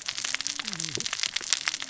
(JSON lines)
{"label": "biophony, cascading saw", "recorder": "SoundTrap 600 or HydroMoth"}